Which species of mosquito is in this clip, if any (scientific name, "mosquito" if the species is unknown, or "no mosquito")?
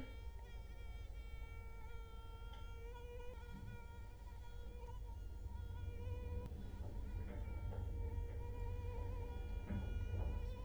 Culex quinquefasciatus